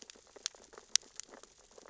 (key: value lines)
label: biophony, sea urchins (Echinidae)
recorder: SoundTrap 600 or HydroMoth